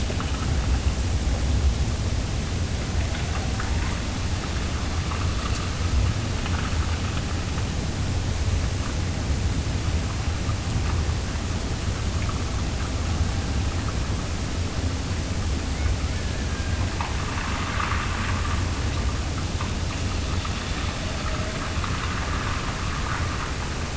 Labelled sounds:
15.7	17.2	killer whale, Bigg's (transient), Gulf of Alaska transient, 1.4 to 2.2 kHz

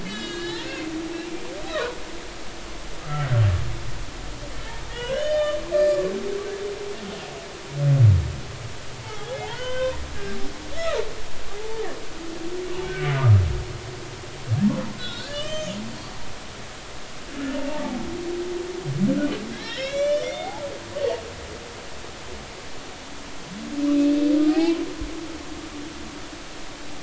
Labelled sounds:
0.0	0.9	humpback whale, 1.6 to 5.4 kHz
1.7	2.0	humpback whale, 0.93 to 1.4 kHz
3.0	3.3	humpback whale, 1.2 to 1.4 kHz
4.9	6.0	humpback whale, 1.4 to 4.2 kHz
9.0	10.0	humpback whale, 0.80 to 3.2 kHz
11.5	11.8	humpback whale, 0.80 to 0.96 kHz
12.9	13.4	humpback whale, 1.2 to 2.3 kHz
15.0	15.8	humpback whale, 1.3 to 8.0 kHz
17.7	18.0	humpback whale, 0.80 to 0.96 kHz
19.5	20.6	humpback whale, 1.6 to 6.4 kHz
24.5	24.8	humpback whale, 0.80 to 3.1 kHz

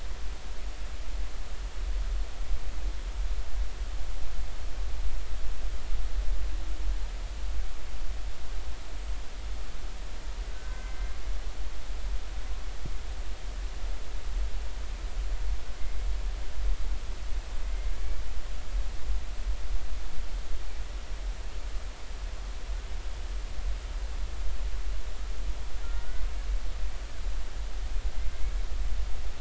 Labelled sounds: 10.5	11.2	humpback whale, 1.5 to 2.1 kHz
15.8	16.1	humpback whale, 2.0 to 2.2 kHz
25.8	26.2	humpback whale, 1.3 to 1.6 kHz

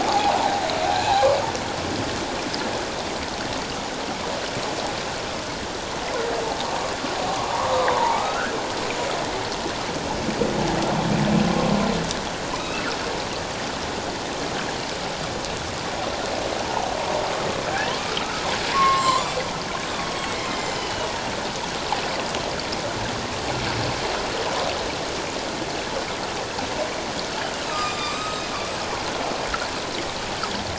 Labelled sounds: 0.0	1.3	humpback whale, 0.78 to 1.8 kHz
7.3	8.5	humpback whale, 0.78 to 1.8 kHz
12.5	12.8	humpback whale, 2.3 to 2.8 kHz
18.2	19.3	humpback whale, 0.91 to 7.6 kHz
20.4	21.1	humpback whale, 2.0 to 7.3 kHz
27.7	28.5	humpback whale, 1.1 to 7.8 kHz

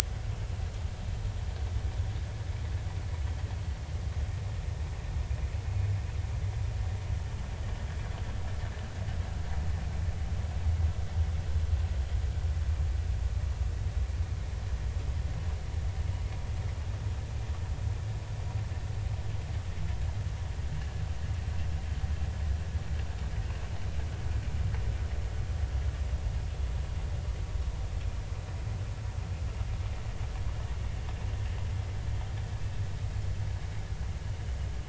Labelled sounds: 3.2	3.5	vessel noise, 3.1 to 3.3 kHz

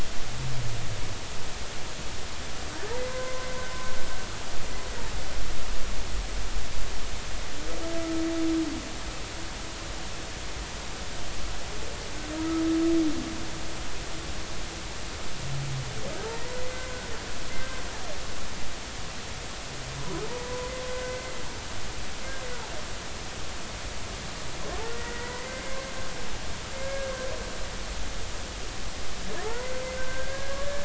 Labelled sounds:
3.0	3.5	humpback whale, 0.99 to 1.6 kHz
16.5	17.8	humpback whale, 1.5 to 2.1 kHz
20.0	20.7	humpback whale, 0.86 to 1.1 kHz
21.9	22.2	humpback whale, 1.5 to 2.1 kHz
24.8	25.8	humpback whale, 0.93 to 2.2 kHz
26.7	27.1	humpback whale, 1.6 to 2.2 kHz
29.4	30.8	humpback whale, 0.80 to 1.8 kHz

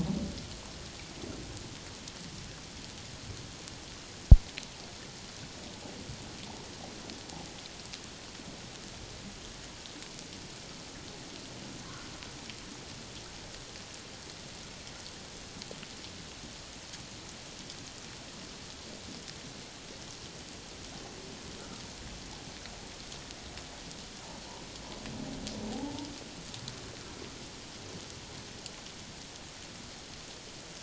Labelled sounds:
25.7	26.1	humpback whale, 0.78 to 0.97 kHz

